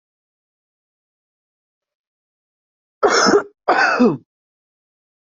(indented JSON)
{
  "expert_labels": [
    {
      "quality": "good",
      "cough_type": "unknown",
      "dyspnea": false,
      "wheezing": false,
      "stridor": false,
      "choking": false,
      "congestion": false,
      "nothing": true,
      "diagnosis": "lower respiratory tract infection",
      "severity": "mild"
    }
  ],
  "age": 31,
  "gender": "male",
  "respiratory_condition": false,
  "fever_muscle_pain": false,
  "status": "symptomatic"
}